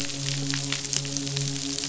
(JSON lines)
{"label": "biophony, midshipman", "recorder": "SoundTrap 500"}